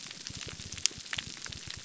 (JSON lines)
{"label": "biophony", "recorder": "SoundTrap 300"}